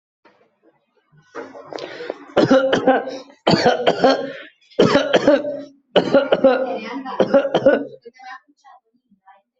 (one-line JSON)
{"expert_labels": [{"quality": "good", "cough_type": "dry", "dyspnea": false, "wheezing": false, "stridor": false, "choking": false, "congestion": false, "nothing": true, "diagnosis": "healthy cough", "severity": "pseudocough/healthy cough"}], "age": 39, "gender": "male", "respiratory_condition": false, "fever_muscle_pain": false, "status": "COVID-19"}